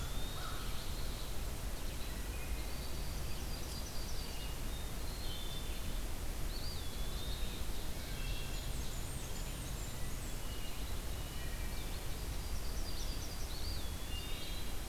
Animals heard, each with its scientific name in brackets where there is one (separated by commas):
Ovenbird (Seiurus aurocapilla), Blackburnian Warbler (Setophaga fusca), Yellow-rumped Warbler (Setophaga coronata), Wood Thrush (Hylocichla mustelina), American Crow (Corvus brachyrhynchos), Red-eyed Vireo (Vireo olivaceus), Eastern Wood-Pewee (Contopus virens)